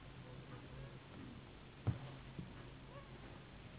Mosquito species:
Anopheles gambiae s.s.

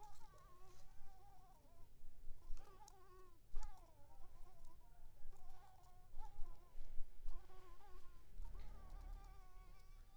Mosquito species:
Anopheles coustani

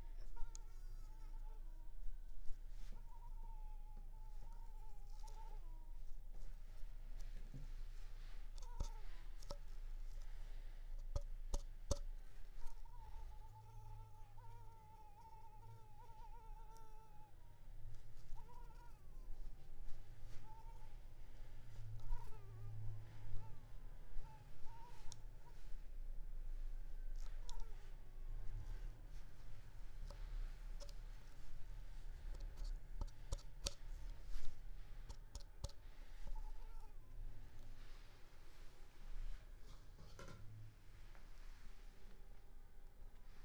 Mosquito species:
Culex pipiens complex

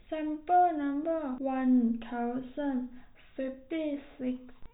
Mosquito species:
no mosquito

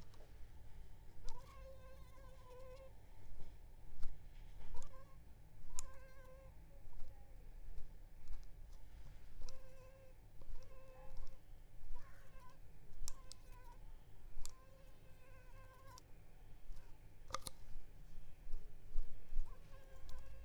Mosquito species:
Culex pipiens complex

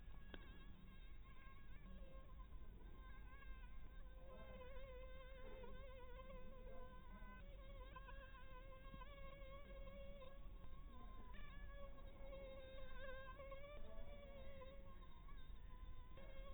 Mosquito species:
Anopheles dirus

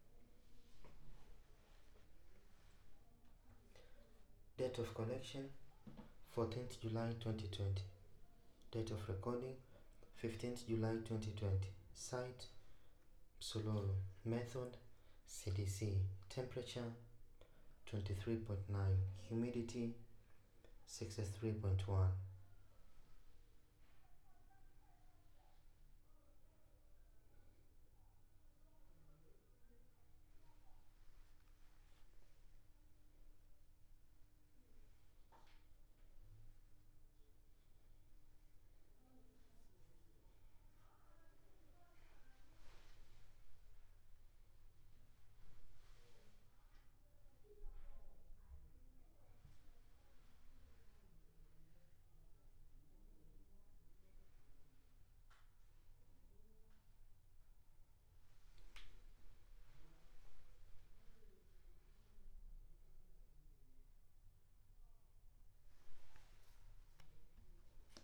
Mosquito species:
no mosquito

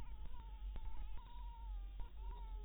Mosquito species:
Anopheles harrisoni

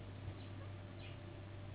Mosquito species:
Anopheles gambiae s.s.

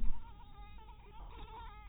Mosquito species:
mosquito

